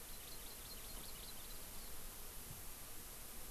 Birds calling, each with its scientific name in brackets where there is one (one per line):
Hawaii Amakihi (Chlorodrepanis virens)